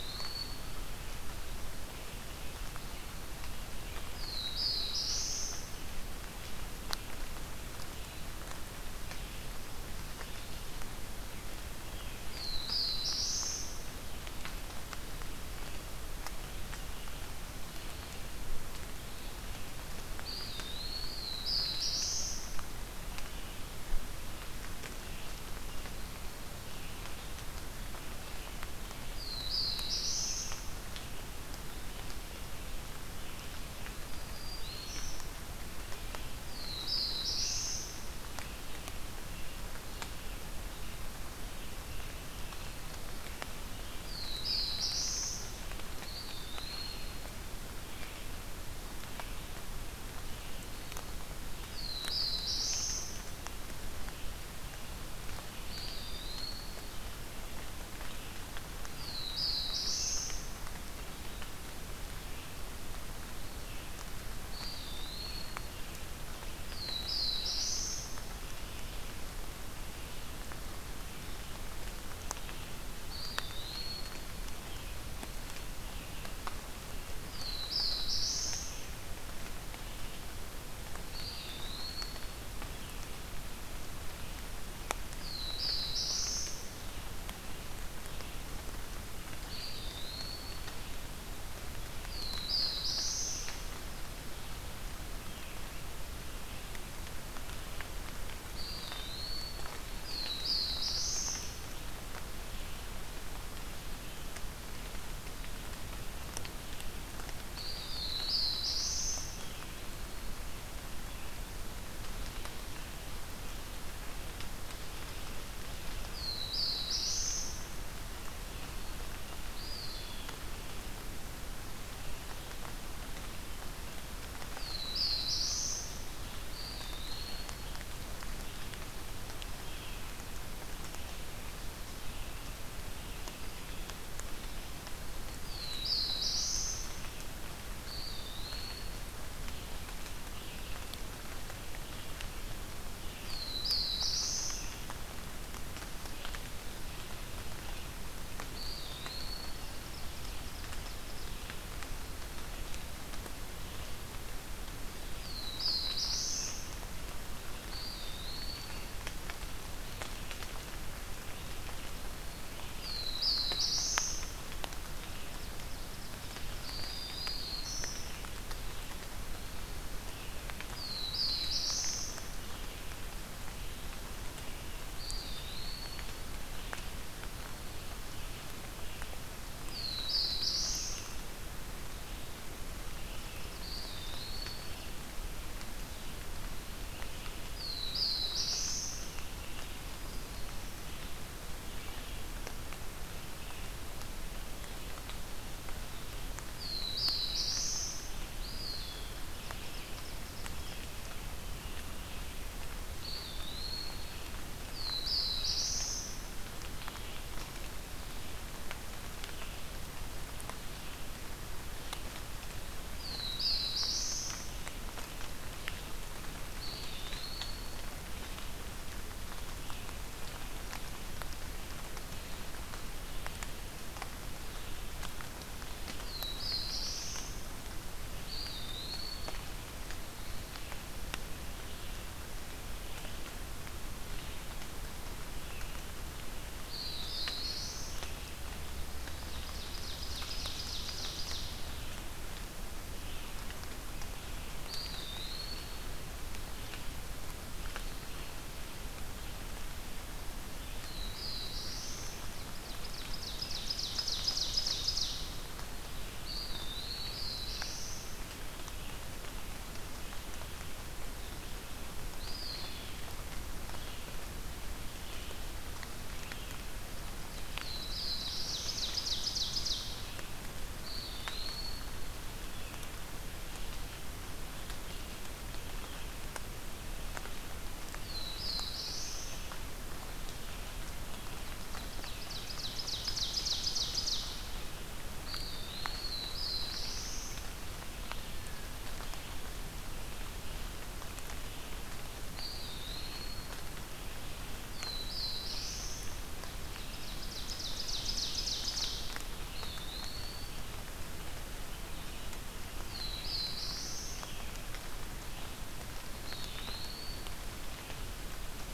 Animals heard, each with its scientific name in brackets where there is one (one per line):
Black-throated Blue Warbler (Setophaga caerulescens)
Eastern Wood-Pewee (Contopus virens)
Red-eyed Vireo (Vireo olivaceus)
Black-throated Green Warbler (Setophaga virens)
Ovenbird (Seiurus aurocapilla)